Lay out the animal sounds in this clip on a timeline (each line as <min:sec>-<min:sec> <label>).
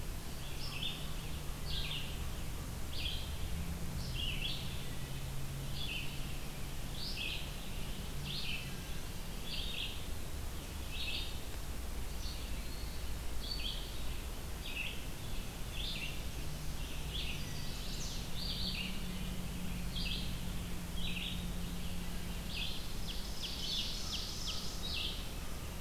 0:00.0-0:25.3 Red-eyed Vireo (Vireo olivaceus)
0:12.2-0:13.1 Eastern Wood-Pewee (Contopus virens)
0:15.3-0:16.8 Black-and-white Warbler (Mniotilta varia)
0:17.2-0:18.4 Chestnut-sided Warbler (Setophaga pensylvanica)
0:22.9-0:25.2 Ovenbird (Seiurus aurocapilla)